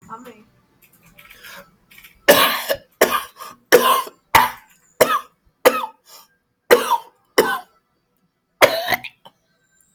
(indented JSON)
{
  "expert_labels": [
    {
      "quality": "good",
      "cough_type": "wet",
      "dyspnea": false,
      "wheezing": false,
      "stridor": false,
      "choking": false,
      "congestion": false,
      "nothing": true,
      "diagnosis": "upper respiratory tract infection",
      "severity": "severe"
    }
  ],
  "age": 47,
  "gender": "male",
  "respiratory_condition": false,
  "fever_muscle_pain": false,
  "status": "healthy"
}